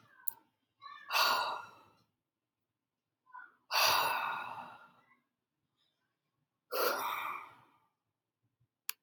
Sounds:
Sigh